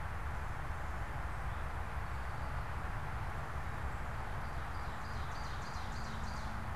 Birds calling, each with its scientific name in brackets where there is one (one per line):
Ovenbird (Seiurus aurocapilla)
Eastern Towhee (Pipilo erythrophthalmus)